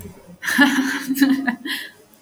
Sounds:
Laughter